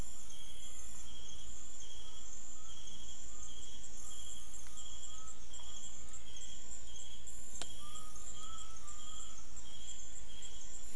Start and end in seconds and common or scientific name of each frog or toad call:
0.0	1.3	menwig frog
5.6	7.1	menwig frog